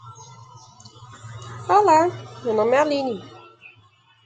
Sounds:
Laughter